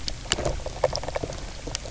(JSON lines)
{"label": "biophony, knock croak", "recorder": "SoundTrap 300"}